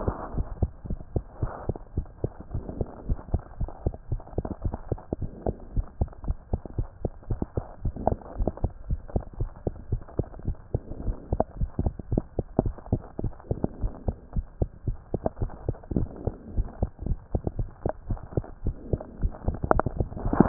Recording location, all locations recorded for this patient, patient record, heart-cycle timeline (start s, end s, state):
mitral valve (MV)
aortic valve (AV)+pulmonary valve (PV)+tricuspid valve (TV)+mitral valve (MV)
#Age: Child
#Sex: Female
#Height: 113.0 cm
#Weight: 17.8 kg
#Pregnancy status: False
#Murmur: Absent
#Murmur locations: nan
#Most audible location: nan
#Systolic murmur timing: nan
#Systolic murmur shape: nan
#Systolic murmur grading: nan
#Systolic murmur pitch: nan
#Systolic murmur quality: nan
#Diastolic murmur timing: nan
#Diastolic murmur shape: nan
#Diastolic murmur grading: nan
#Diastolic murmur pitch: nan
#Diastolic murmur quality: nan
#Outcome: Normal
#Campaign: 2015 screening campaign
0.00	0.14	unannotated
0.14	0.32	diastole
0.32	0.48	S1
0.48	0.58	systole
0.58	0.70	S2
0.70	0.86	diastole
0.86	1.00	S1
1.00	1.12	systole
1.12	1.24	S2
1.24	1.40	diastole
1.40	1.52	S1
1.52	1.66	systole
1.66	1.76	S2
1.76	1.94	diastole
1.94	2.08	S1
2.08	2.20	systole
2.20	2.34	S2
2.34	2.52	diastole
2.52	2.64	S1
2.64	2.78	systole
2.78	2.88	S2
2.88	3.04	diastole
3.04	3.20	S1
3.20	3.30	systole
3.30	3.44	S2
3.44	3.60	diastole
3.60	3.70	S1
3.70	3.82	systole
3.82	3.94	S2
3.94	4.10	diastole
4.10	4.20	S1
4.20	4.34	systole
4.34	4.46	S2
4.46	4.62	diastole
4.62	4.74	S1
4.74	4.88	systole
4.88	5.00	S2
5.00	5.20	diastole
5.20	5.30	S1
5.30	5.46	systole
5.46	5.56	S2
5.56	5.74	diastole
5.74	5.86	S1
5.86	5.98	systole
5.98	6.08	S2
6.08	6.24	diastole
6.24	6.36	S1
6.36	6.48	systole
6.48	6.60	S2
6.60	6.76	diastole
6.76	6.88	S1
6.88	7.02	systole
7.02	7.12	S2
7.12	7.28	diastole
7.28	7.40	S1
7.40	7.56	systole
7.56	7.64	S2
7.64	7.84	diastole
7.84	7.94	S1
7.94	8.06	systole
8.06	8.18	S2
8.18	8.36	diastole
8.36	8.52	S1
8.52	8.62	systole
8.62	8.72	S2
8.72	8.88	diastole
8.88	9.00	S1
9.00	9.12	systole
9.12	9.26	S2
9.26	9.38	diastole
9.38	9.50	S1
9.50	9.64	systole
9.64	9.74	S2
9.74	9.90	diastole
9.90	10.00	S1
10.00	10.16	systole
10.16	10.26	S2
10.26	10.44	diastole
10.44	10.56	S1
10.56	10.70	systole
10.70	10.82	S2
10.82	11.00	diastole
11.00	11.16	S1
11.16	11.30	systole
11.30	11.40	S2
11.40	11.56	diastole
11.56	11.70	S1
11.70	11.80	systole
11.80	11.94	S2
11.94	12.10	diastole
12.10	12.24	S1
12.24	12.36	systole
12.36	12.46	S2
12.46	12.60	diastole
12.60	12.74	S1
12.74	12.90	systole
12.90	13.04	S2
13.04	13.20	diastole
13.20	13.32	S1
13.32	13.48	systole
13.48	13.62	S2
13.62	13.82	diastole
13.82	13.92	S1
13.92	14.06	systole
14.06	14.16	S2
14.16	14.32	diastole
14.32	14.46	S1
14.46	14.60	systole
14.60	14.70	S2
14.70	14.86	diastole
14.86	14.98	S1
14.98	15.12	systole
15.12	15.22	S2
15.22	15.40	diastole
15.40	15.50	S1
15.50	15.66	systole
15.66	15.76	S2
15.76	15.92	diastole
15.92	16.10	S1
16.10	16.24	systole
16.24	16.34	S2
16.34	16.52	diastole
16.52	16.68	S1
16.68	16.80	systole
16.80	16.90	S2
16.90	17.06	diastole
17.06	17.18	S1
17.18	17.30	systole
17.30	17.42	S2
17.42	17.58	diastole
17.58	17.70	S1
17.70	17.84	systole
17.84	17.94	S2
17.94	18.08	diastole
18.08	18.20	S1
18.20	18.36	systole
18.36	18.44	S2
18.44	18.62	diastole
18.62	18.76	S1
18.76	18.92	systole
18.92	19.02	S2
19.02	19.18	diastole
19.18	19.36	S1
19.36	20.48	unannotated